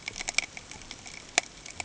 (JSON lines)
{"label": "ambient", "recorder": "HydroMoth"}